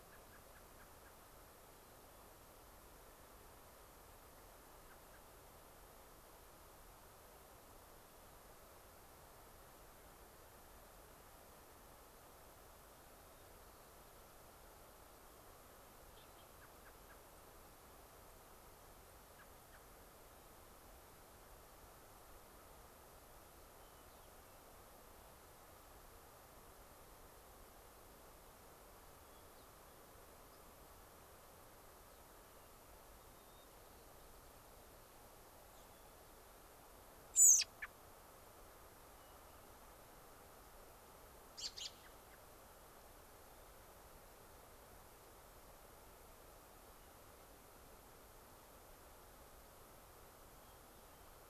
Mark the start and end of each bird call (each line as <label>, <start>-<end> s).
American Robin (Turdus migratorius), 0.0-1.2 s
American Robin (Turdus migratorius), 4.9-5.2 s
White-crowned Sparrow (Zonotrichia leucophrys), 13.2-14.7 s
American Robin (Turdus migratorius), 16.5-17.2 s
unidentified bird, 17.3-17.4 s
unidentified bird, 18.3-18.4 s
unidentified bird, 19.0-19.1 s
American Robin (Turdus migratorius), 19.3-19.8 s
unidentified bird, 19.5-19.7 s
Hermit Thrush (Catharus guttatus), 23.7-24.6 s
Hermit Thrush (Catharus guttatus), 29.2-30.0 s
unidentified bird, 30.5-30.6 s
White-crowned Sparrow (Zonotrichia leucophrys), 33.1-34.7 s
American Robin (Turdus migratorius), 37.3-37.9 s
Hermit Thrush (Catharus guttatus), 39.1-39.6 s
American Robin (Turdus migratorius), 41.5-42.4 s
Hermit Thrush (Catharus guttatus), 47.0-47.1 s
Hermit Thrush (Catharus guttatus), 50.6-51.3 s